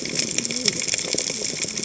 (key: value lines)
label: biophony, cascading saw
recorder: HydroMoth